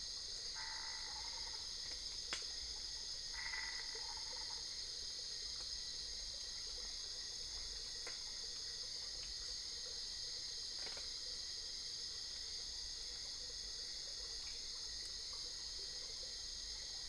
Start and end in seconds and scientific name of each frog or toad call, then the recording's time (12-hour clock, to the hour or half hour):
0.0	4.6	Boana albopunctata
~1am